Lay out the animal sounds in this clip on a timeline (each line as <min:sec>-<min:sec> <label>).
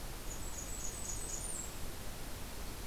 0:00.0-0:02.0 Blackburnian Warbler (Setophaga fusca)